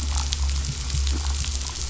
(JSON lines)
{"label": "anthrophony, boat engine", "recorder": "SoundTrap 500"}